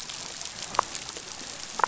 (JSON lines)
{"label": "biophony, damselfish", "recorder": "SoundTrap 500"}